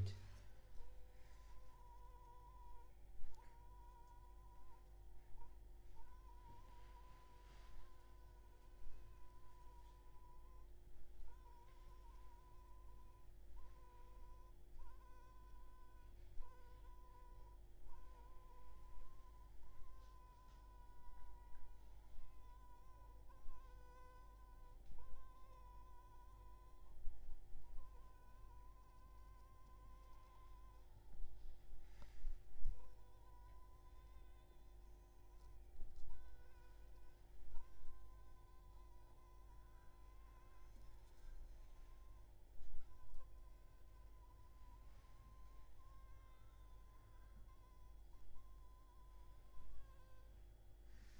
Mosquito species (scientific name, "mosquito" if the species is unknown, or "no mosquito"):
Anopheles funestus s.s.